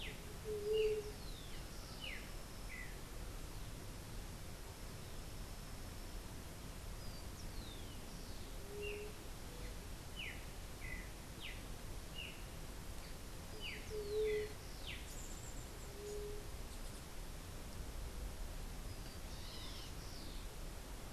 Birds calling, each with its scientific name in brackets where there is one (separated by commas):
White-tipped Dove (Leptotila verreauxi), Streaked Saltator (Saltator striatipectus), Rufous-collared Sparrow (Zonotrichia capensis)